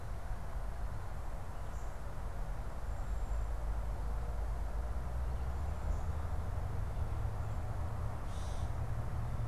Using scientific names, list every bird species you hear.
Dumetella carolinensis